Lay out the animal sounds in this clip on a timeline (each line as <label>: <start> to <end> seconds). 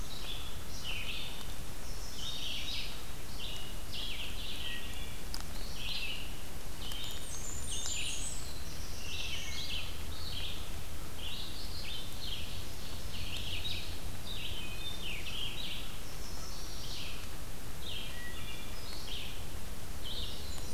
Red-eyed Vireo (Vireo olivaceus): 0.0 to 20.7 seconds
Chestnut-sided Warbler (Setophaga pensylvanica): 1.7 to 2.7 seconds
Wood Thrush (Hylocichla mustelina): 4.3 to 5.2 seconds
Blackburnian Warbler (Setophaga fusca): 6.9 to 8.6 seconds
Black-throated Blue Warbler (Setophaga caerulescens): 8.2 to 9.9 seconds
Ovenbird (Seiurus aurocapilla): 12.0 to 13.7 seconds
Wood Thrush (Hylocichla mustelina): 14.4 to 15.5 seconds
Chestnut-sided Warbler (Setophaga pensylvanica): 16.0 to 17.2 seconds
Wood Thrush (Hylocichla mustelina): 18.0 to 19.0 seconds